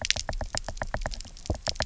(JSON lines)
{"label": "biophony, knock", "recorder": "SoundTrap 300"}